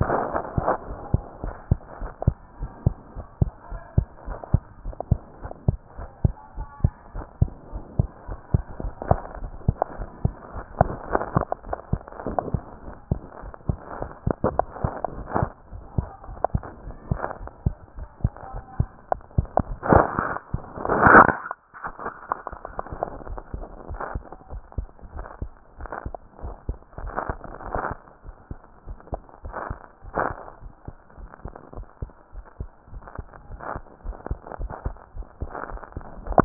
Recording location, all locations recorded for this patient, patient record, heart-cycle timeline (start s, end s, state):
pulmonary valve (PV)
aortic valve (AV)+pulmonary valve (PV)+tricuspid valve (TV)+mitral valve (MV)
#Age: Child
#Sex: Female
#Height: 122.0 cm
#Weight: 25.9 kg
#Pregnancy status: False
#Murmur: Absent
#Murmur locations: nan
#Most audible location: nan
#Systolic murmur timing: nan
#Systolic murmur shape: nan
#Systolic murmur grading: nan
#Systolic murmur pitch: nan
#Systolic murmur quality: nan
#Diastolic murmur timing: nan
#Diastolic murmur shape: nan
#Diastolic murmur grading: nan
#Diastolic murmur pitch: nan
#Diastolic murmur quality: nan
#Outcome: Normal
#Campaign: 2015 screening campaign
0.00	1.39	unannotated
1.39	1.56	S1
1.56	1.66	systole
1.66	1.80	S2
1.80	1.97	diastole
1.97	2.14	S1
2.14	2.23	systole
2.23	2.36	S2
2.36	2.58	diastole
2.58	2.68	S1
2.68	2.82	systole
2.82	2.94	S2
2.94	3.15	diastole
3.15	3.27	S1
3.27	3.39	systole
3.39	3.50	S2
3.50	3.68	diastole
3.68	3.80	S1
3.80	3.95	systole
3.95	4.04	S2
4.04	4.26	diastole
4.26	4.37	S1
4.37	4.51	systole
4.51	4.60	S2
4.60	4.82	diastole
4.82	4.94	S1
4.94	5.08	systole
5.08	5.20	S2
5.20	5.42	diastole
5.42	5.53	S1
5.53	5.65	systole
5.65	5.77	S2
5.77	5.96	diastole
5.96	6.08	S1
6.08	6.22	systole
6.22	6.33	S2
6.33	6.55	diastole
6.55	6.67	S1
6.67	6.80	systole
6.80	6.91	S2
6.91	7.13	diastole
7.13	7.25	S1
7.25	7.38	systole
7.38	7.49	S2
7.49	7.71	diastole
7.71	7.83	S1
7.83	7.96	systole
7.96	8.07	S2
8.07	8.25	diastole
8.25	8.38	S1
8.38	8.51	systole
8.51	8.63	S2
8.63	8.81	diastole
8.81	8.91	S1
8.91	36.45	unannotated